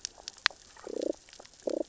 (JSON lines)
{"label": "biophony, damselfish", "recorder": "SoundTrap 600 or HydroMoth"}